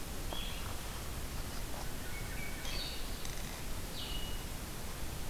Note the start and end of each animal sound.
0.0s-5.3s: Blue-headed Vireo (Vireo solitarius)
1.7s-3.5s: Hermit Thrush (Catharus guttatus)

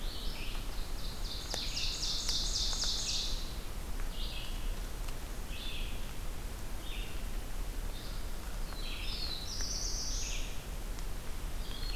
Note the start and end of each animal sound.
0.0s-12.0s: Red-eyed Vireo (Vireo olivaceus)
0.6s-3.6s: Ovenbird (Seiurus aurocapilla)
8.6s-10.7s: Black-throated Blue Warbler (Setophaga caerulescens)

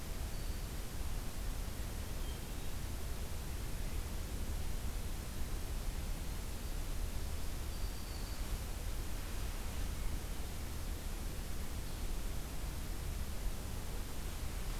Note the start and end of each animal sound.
7.6s-8.6s: unidentified call

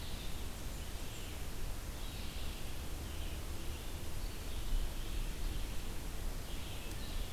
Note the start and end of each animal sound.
0.0s-7.3s: Red-eyed Vireo (Vireo olivaceus)
0.2s-1.3s: Blackburnian Warbler (Setophaga fusca)

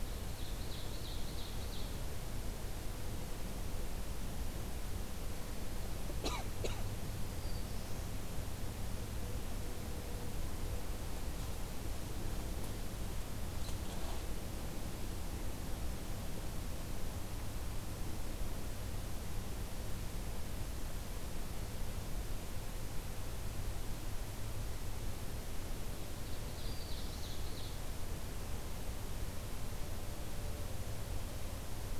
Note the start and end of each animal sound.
0.0s-1.9s: Ovenbird (Seiurus aurocapilla)
7.1s-8.2s: Black-throated Blue Warbler (Setophaga caerulescens)
25.9s-27.8s: Ovenbird (Seiurus aurocapilla)
26.5s-27.5s: Black-throated Blue Warbler (Setophaga caerulescens)

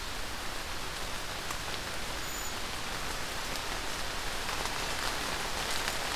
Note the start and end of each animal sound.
1.9s-2.7s: Cedar Waxwing (Bombycilla cedrorum)

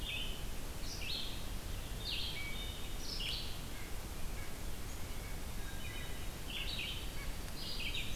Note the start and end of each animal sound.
0.0s-8.2s: Red-eyed Vireo (Vireo olivaceus)
2.2s-3.1s: Wood Thrush (Hylocichla mustelina)
3.7s-7.3s: White-breasted Nuthatch (Sitta carolinensis)
5.4s-7.8s: White-throated Sparrow (Zonotrichia albicollis)
5.6s-6.3s: Wood Thrush (Hylocichla mustelina)

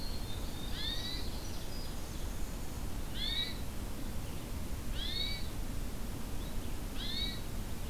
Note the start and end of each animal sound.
0.0s-2.7s: Winter Wren (Troglodytes hiemalis)
0.0s-7.9s: Red-eyed Vireo (Vireo olivaceus)
0.2s-2.4s: Ovenbird (Seiurus aurocapilla)
0.7s-1.2s: Hermit Thrush (Catharus guttatus)
3.1s-3.6s: Hermit Thrush (Catharus guttatus)
4.9s-5.5s: Hermit Thrush (Catharus guttatus)
7.0s-7.4s: Hermit Thrush (Catharus guttatus)

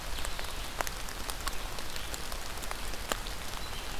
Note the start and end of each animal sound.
0.0s-4.0s: Red-eyed Vireo (Vireo olivaceus)

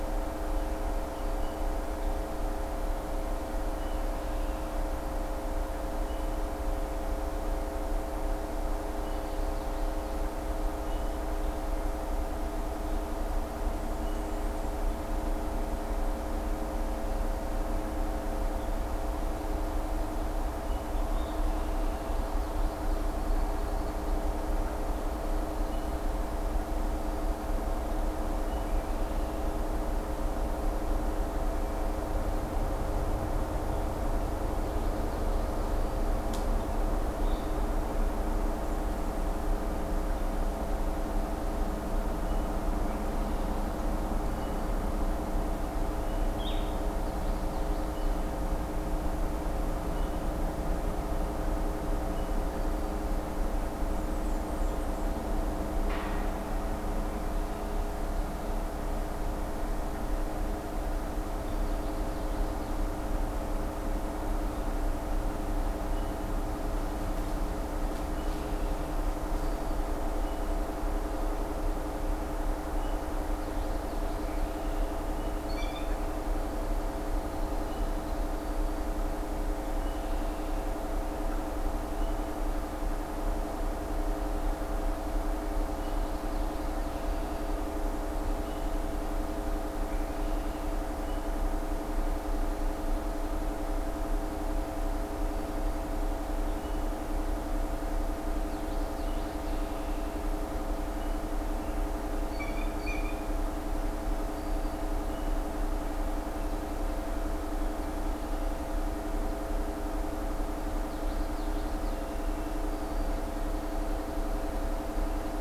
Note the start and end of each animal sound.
8.7s-10.4s: Common Yellowthroat (Geothlypis trichas)
13.5s-15.0s: Blackburnian Warbler (Setophaga fusca)
21.6s-23.1s: Common Yellowthroat (Geothlypis trichas)
22.6s-24.7s: Pine Warbler (Setophaga pinus)
34.3s-35.8s: Common Yellowthroat (Geothlypis trichas)
46.1s-46.8s: Blue-headed Vireo (Vireo solitarius)
46.7s-48.4s: Common Yellowthroat (Geothlypis trichas)
52.4s-53.1s: Black-throated Green Warbler (Setophaga virens)
53.6s-55.3s: Blackburnian Warbler (Setophaga fusca)
61.1s-63.0s: Common Yellowthroat (Geothlypis trichas)
73.0s-74.7s: Common Yellowthroat (Geothlypis trichas)
75.2s-76.0s: Blue Jay (Cyanocitta cristata)
79.4s-82.4s: Red-winged Blackbird (Agelaius phoeniceus)
85.5s-87.6s: Common Yellowthroat (Geothlypis trichas)
97.8s-100.1s: Common Yellowthroat (Geothlypis trichas)
101.9s-103.5s: Blue Jay (Cyanocitta cristata)
110.5s-112.4s: Common Yellowthroat (Geothlypis trichas)

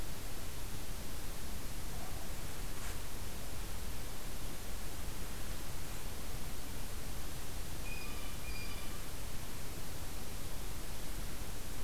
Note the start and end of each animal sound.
7.7s-9.1s: Blue Jay (Cyanocitta cristata)

